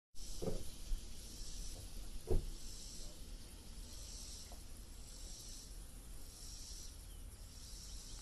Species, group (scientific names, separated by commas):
Neotibicen robinsonianus, Cicadidae